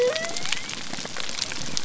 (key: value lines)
label: biophony
recorder: SoundTrap 300